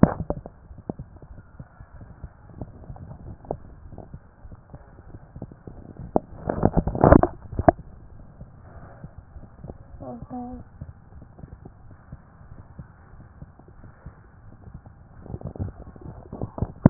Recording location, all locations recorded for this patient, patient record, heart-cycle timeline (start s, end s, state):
mitral valve (MV)
aortic valve (AV)+pulmonary valve (PV)+tricuspid valve (TV)+mitral valve (MV)+mitral valve (MV)
#Age: Adolescent
#Sex: Male
#Height: 150.0 cm
#Weight: 41.1 kg
#Pregnancy status: False
#Murmur: Absent
#Murmur locations: nan
#Most audible location: nan
#Systolic murmur timing: nan
#Systolic murmur shape: nan
#Systolic murmur grading: nan
#Systolic murmur pitch: nan
#Systolic murmur quality: nan
#Diastolic murmur timing: nan
#Diastolic murmur shape: nan
#Diastolic murmur grading: nan
#Diastolic murmur pitch: nan
#Diastolic murmur quality: nan
#Outcome: Normal
#Campaign: 2014 screening campaign
0.00	8.14	unannotated
8.14	8.22	S1
8.22	8.40	systole
8.40	8.48	S2
8.48	8.74	diastole
8.74	8.84	S1
8.84	9.02	systole
9.02	9.10	S2
9.10	9.34	diastole
9.34	9.44	S1
9.44	9.66	systole
9.66	9.74	S2
9.74	9.92	diastole
9.92	10.01	S1
10.01	10.20	systole
10.20	10.27	S2
10.27	10.54	diastole
10.54	10.64	S1
10.64	10.80	systole
10.80	10.87	S2
10.87	11.14	diastole
11.14	16.90	unannotated